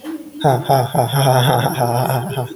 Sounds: Laughter